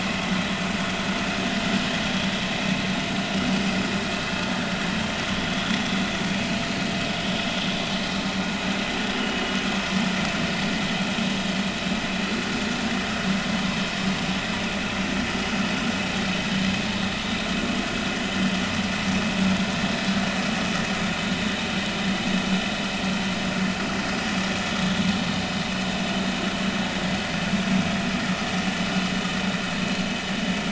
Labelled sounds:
9.2	9.5	vessel noise, 2.7 to 3.1 kHz

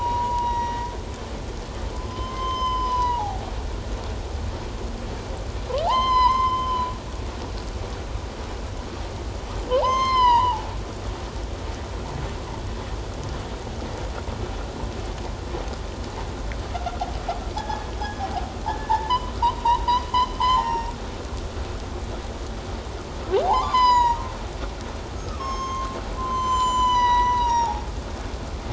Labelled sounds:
0.0	0.9	humpback whale, 0.91 to 6.8 kHz
2.0	3.5	humpback whale, 0.78 to 6.2 kHz
5.9	6.9	humpback whale, 0.78 to 6.3 kHz
9.7	10.7	humpback whale, 0.78 to 6.3 kHz
17.6	17.9	humpback whale, 0.78 to 1.8 kHz
18.7	19.3	humpback whale, 0.81 to 3.2 kHz
19.6	20.0	humpback whale, 0.84 to 1.1 kHz
20.4	20.9	humpback whale, 0.78 to 5.7 kHz
23.4	24.2	humpback whale, 0.78 to 7.1 kHz
25.2	27.8	humpback whale, 0.78 to 7.3 kHz

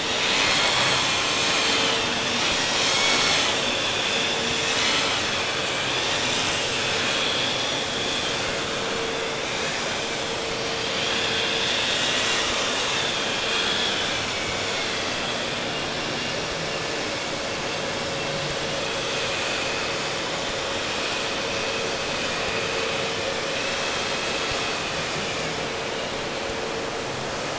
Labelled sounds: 0.0	8.6	vessel noise, 0.63 to 8.0 kHz
10.6	16.0	vessel noise, 0.77 to 8.0 kHz

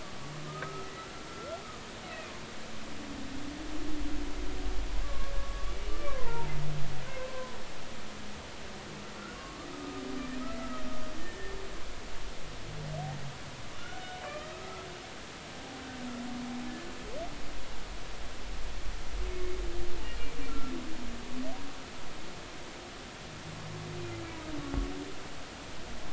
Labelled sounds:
0.4	1.6	humpback whale, 1.2 to 1.4 kHz
5.0	6.5	humpback whale, 0.83 to 1.2 kHz
7.1	7.6	humpback whale, 0.96 to 1.1 kHz
9.7	10.0	humpback whale, 1.2 to 1.3 kHz
11.2	11.6	humpback whale, 1.7 to 1.9 kHz
13.8	14.9	humpback whale, 1.1 to 1.5 kHz
20.5	20.7	humpback whale, 1.3 to 1.4 kHz

